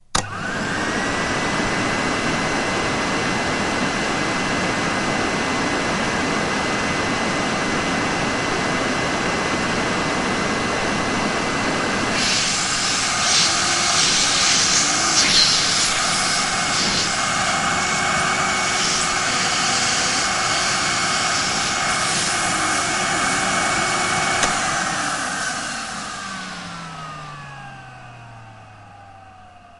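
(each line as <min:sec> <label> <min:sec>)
0:00.0 A crisp clicking sound as a vacuum cleaner is turned on. 0:00.3
0:00.3 A high-pitched mechanical whirring from a vacuum cleaner motor. 0:24.8
0:00.3 A deep humming sound of air passing through a vacuum cleaner. 0:12.1
0:12.0 An irregular high-pitched, piercing whistle from a vacuum cleaner suction. 0:24.5
0:24.3 A crisp clicking sound of a vacuum cleaner being turned off. 0:24.6
0:24.7 A whirring sound slowly diminishes as a vacuum cleaner is turned off. 0:29.8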